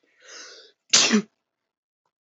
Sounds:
Sneeze